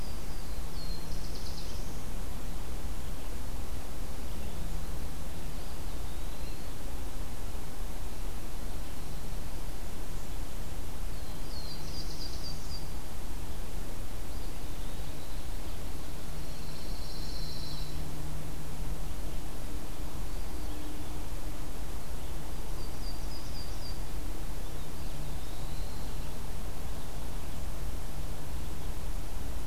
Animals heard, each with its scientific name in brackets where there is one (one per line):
Black-throated Blue Warbler (Setophaga caerulescens)
Eastern Wood-Pewee (Contopus virens)
Yellow-rumped Warbler (Setophaga coronata)
Pine Warbler (Setophaga pinus)